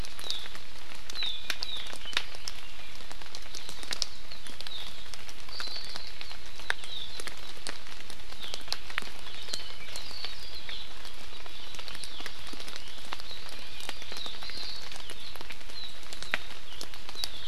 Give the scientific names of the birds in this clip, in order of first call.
Chlorodrepanis virens, Himatione sanguinea